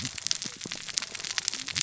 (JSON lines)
{"label": "biophony, cascading saw", "recorder": "SoundTrap 600 or HydroMoth"}